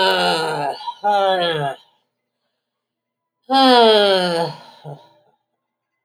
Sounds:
Sigh